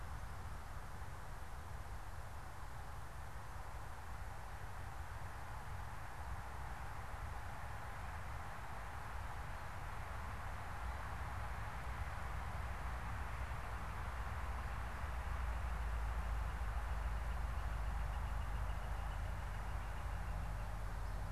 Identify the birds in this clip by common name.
Northern Flicker